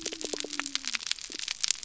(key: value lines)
label: biophony
recorder: SoundTrap 300